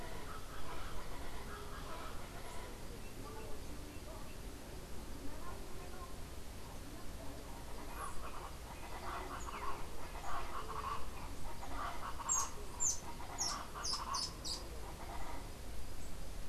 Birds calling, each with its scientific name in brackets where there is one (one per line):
Rufous-tailed Hummingbird (Amazilia tzacatl)
Colombian Chachalaca (Ortalis columbiana)